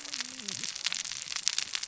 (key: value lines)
label: biophony, cascading saw
recorder: SoundTrap 600 or HydroMoth